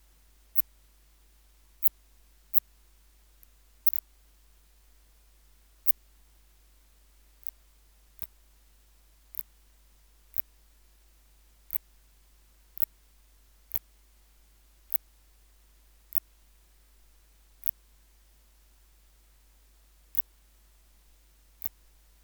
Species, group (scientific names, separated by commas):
Phaneroptera nana, Orthoptera